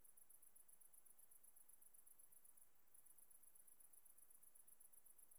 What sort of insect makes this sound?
orthopteran